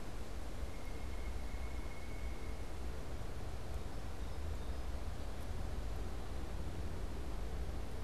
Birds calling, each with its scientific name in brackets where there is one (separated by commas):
Song Sparrow (Melospiza melodia), Pileated Woodpecker (Dryocopus pileatus)